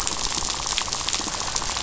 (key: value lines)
label: biophony, rattle
recorder: SoundTrap 500